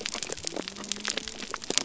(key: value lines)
label: biophony
recorder: SoundTrap 300